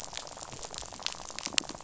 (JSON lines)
{"label": "biophony, rattle", "recorder": "SoundTrap 500"}